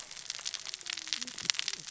{"label": "biophony, cascading saw", "recorder": "SoundTrap 600 or HydroMoth"}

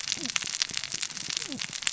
{"label": "biophony, cascading saw", "recorder": "SoundTrap 600 or HydroMoth"}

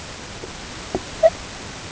{"label": "ambient", "recorder": "HydroMoth"}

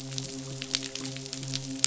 {"label": "biophony, midshipman", "recorder": "SoundTrap 500"}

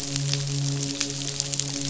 {"label": "biophony, midshipman", "recorder": "SoundTrap 500"}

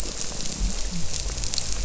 {"label": "biophony", "recorder": "SoundTrap 300"}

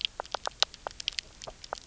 {"label": "biophony, knock croak", "recorder": "SoundTrap 300"}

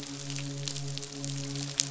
{"label": "biophony, midshipman", "recorder": "SoundTrap 500"}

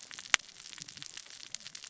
{"label": "biophony, cascading saw", "recorder": "SoundTrap 600 or HydroMoth"}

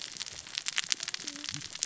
{"label": "biophony, cascading saw", "recorder": "SoundTrap 600 or HydroMoth"}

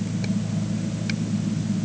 {"label": "anthrophony, boat engine", "recorder": "HydroMoth"}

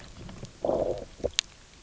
{"label": "biophony, low growl", "recorder": "SoundTrap 300"}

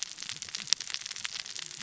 {"label": "biophony, cascading saw", "recorder": "SoundTrap 600 or HydroMoth"}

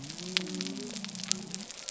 {"label": "biophony", "recorder": "SoundTrap 300"}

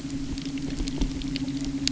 {"label": "anthrophony, boat engine", "recorder": "SoundTrap 300"}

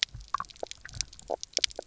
{"label": "biophony, knock croak", "recorder": "SoundTrap 300"}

